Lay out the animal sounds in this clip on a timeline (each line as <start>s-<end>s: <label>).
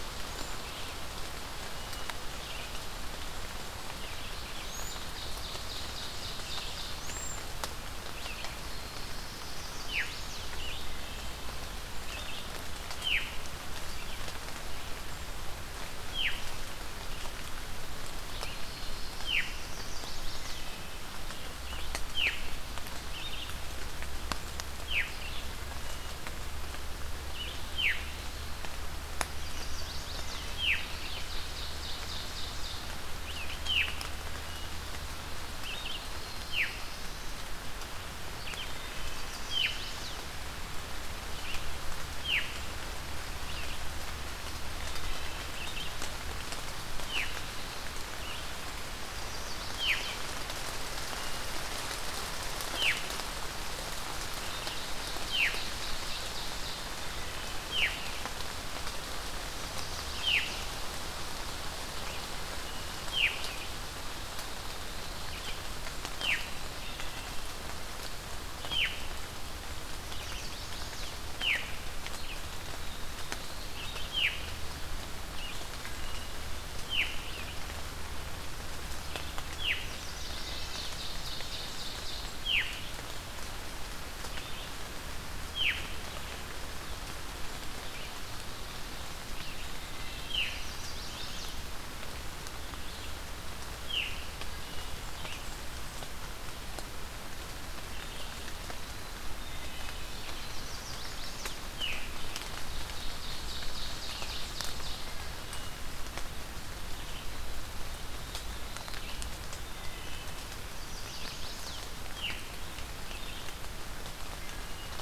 0.0s-102.2s: Red-eyed Vireo (Vireo olivaceus)
0.3s-0.6s: Cedar Waxwing (Bombycilla cedrorum)
1.4s-2.3s: Wood Thrush (Hylocichla mustelina)
4.5s-5.1s: Cedar Waxwing (Bombycilla cedrorum)
4.8s-7.1s: Ovenbird (Seiurus aurocapilla)
6.8s-7.7s: Cedar Waxwing (Bombycilla cedrorum)
8.1s-9.9s: Black-throated Blue Warbler (Setophaga caerulescens)
8.7s-10.5s: Chestnut-sided Warbler (Setophaga pensylvanica)
9.7s-10.2s: Veery (Catharus fuscescens)
10.9s-11.6s: Wood Thrush (Hylocichla mustelina)
12.8s-13.5s: Veery (Catharus fuscescens)
16.0s-16.6s: Veery (Catharus fuscescens)
18.7s-20.7s: Chestnut-sided Warbler (Setophaga pensylvanica)
19.2s-19.6s: Veery (Catharus fuscescens)
20.5s-21.1s: Wood Thrush (Hylocichla mustelina)
22.0s-22.5s: Veery (Catharus fuscescens)
24.7s-25.3s: Veery (Catharus fuscescens)
25.3s-26.2s: Wood Thrush (Hylocichla mustelina)
27.7s-28.3s: Veery (Catharus fuscescens)
29.4s-30.6s: Chestnut-sided Warbler (Setophaga pensylvanica)
30.6s-30.9s: Veery (Catharus fuscescens)
30.8s-32.8s: Ovenbird (Seiurus aurocapilla)
33.5s-34.0s: Veery (Catharus fuscescens)
34.2s-34.8s: Wood Thrush (Hylocichla mustelina)
35.9s-37.5s: Black-throated Blue Warbler (Setophaga caerulescens)
36.5s-36.8s: Veery (Catharus fuscescens)
38.9s-39.3s: Wood Thrush (Hylocichla mustelina)
39.0s-40.3s: Chestnut-sided Warbler (Setophaga pensylvanica)
39.3s-39.9s: Veery (Catharus fuscescens)
42.1s-42.6s: Veery (Catharus fuscescens)
44.6s-45.6s: Wood Thrush (Hylocichla mustelina)
47.0s-47.4s: Veery (Catharus fuscescens)
49.0s-50.2s: Chestnut-sided Warbler (Setophaga pensylvanica)
49.7s-50.1s: Veery (Catharus fuscescens)
52.7s-53.1s: Veery (Catharus fuscescens)
54.0s-57.0s: Ovenbird (Seiurus aurocapilla)
55.2s-55.7s: Veery (Catharus fuscescens)
57.0s-57.6s: Wood Thrush (Hylocichla mustelina)
57.6s-58.0s: Veery (Catharus fuscescens)
60.1s-60.4s: Veery (Catharus fuscescens)
62.5s-63.0s: Wood Thrush (Hylocichla mustelina)
63.0s-63.5s: Veery (Catharus fuscescens)
66.1s-66.5s: Veery (Catharus fuscescens)
67.0s-67.6s: Wood Thrush (Hylocichla mustelina)
68.6s-69.1s: Veery (Catharus fuscescens)
70.0s-71.3s: Chestnut-sided Warbler (Setophaga pensylvanica)
71.3s-71.8s: Veery (Catharus fuscescens)
72.5s-73.8s: Black-throated Blue Warbler (Setophaga caerulescens)
74.0s-74.5s: Veery (Catharus fuscescens)
76.0s-76.4s: Wood Thrush (Hylocichla mustelina)
76.8s-77.2s: Veery (Catharus fuscescens)
79.4s-79.9s: Veery (Catharus fuscescens)
80.0s-82.4s: Ovenbird (Seiurus aurocapilla)
80.4s-81.0s: Wood Thrush (Hylocichla mustelina)
82.2s-82.9s: Veery (Catharus fuscescens)
85.4s-86.0s: Veery (Catharus fuscescens)
89.8s-90.5s: Wood Thrush (Hylocichla mustelina)
90.2s-90.7s: Veery (Catharus fuscescens)
90.4s-91.6s: Chestnut-sided Warbler (Setophaga pensylvanica)
93.8s-94.3s: Veery (Catharus fuscescens)
94.5s-95.2s: Wood Thrush (Hylocichla mustelina)
99.5s-100.1s: Wood Thrush (Hylocichla mustelina)
100.3s-101.6s: Chestnut-sided Warbler (Setophaga pensylvanica)
101.6s-102.1s: Veery (Catharus fuscescens)
102.7s-105.3s: Ovenbird (Seiurus aurocapilla)
104.0s-115.0s: Red-eyed Vireo (Vireo olivaceus)
105.1s-105.5s: Wood Thrush (Hylocichla mustelina)
106.7s-107.7s: Eastern Wood-Pewee (Contopus virens)
108.0s-109.0s: Black-throated Blue Warbler (Setophaga caerulescens)
109.7s-110.2s: Wood Thrush (Hylocichla mustelina)
110.5s-111.8s: Chestnut-sided Warbler (Setophaga pensylvanica)
112.1s-112.4s: Veery (Catharus fuscescens)
114.4s-114.9s: Wood Thrush (Hylocichla mustelina)